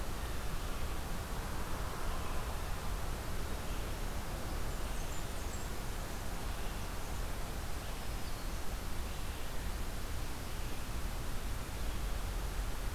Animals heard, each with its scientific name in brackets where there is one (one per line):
Blackburnian Warbler (Setophaga fusca)
Black-throated Green Warbler (Setophaga virens)